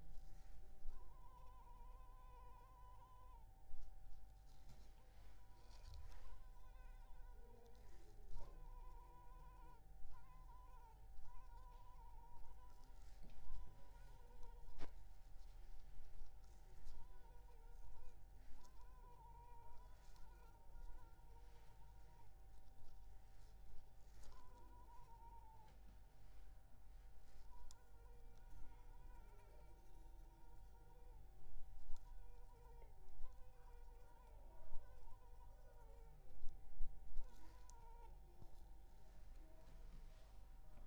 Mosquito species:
Culex pipiens complex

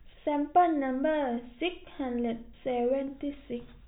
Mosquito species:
no mosquito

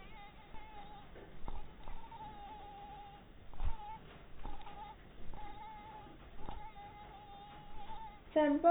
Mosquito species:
mosquito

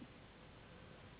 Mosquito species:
Anopheles gambiae s.s.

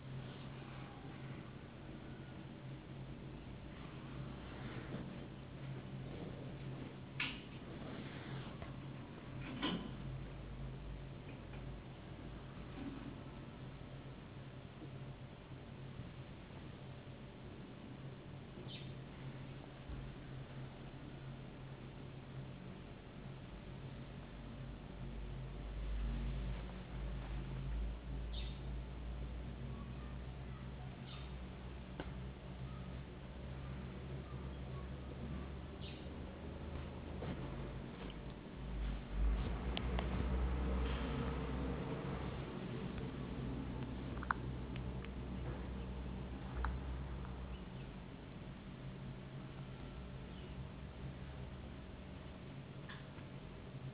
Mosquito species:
no mosquito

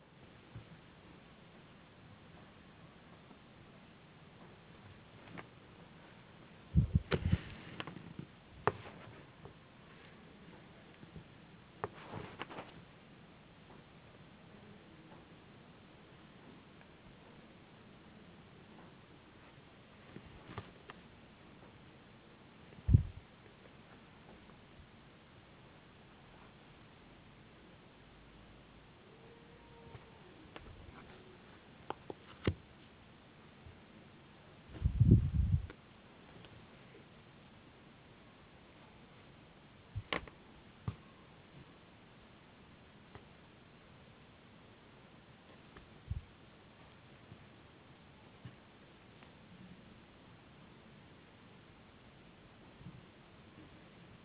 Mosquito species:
no mosquito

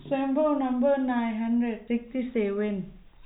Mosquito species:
no mosquito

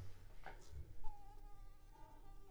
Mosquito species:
Anopheles coustani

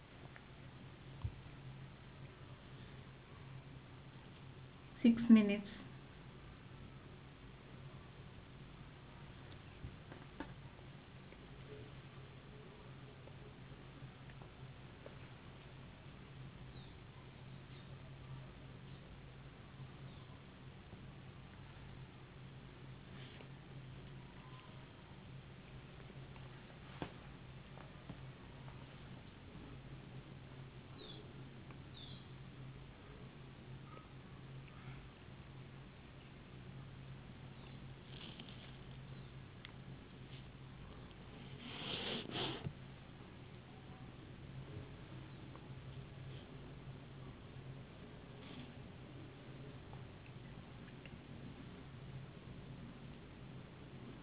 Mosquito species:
no mosquito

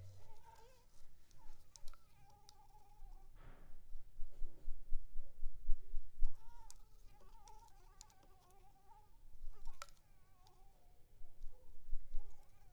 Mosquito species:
Anopheles arabiensis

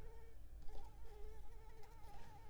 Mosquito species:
Anopheles arabiensis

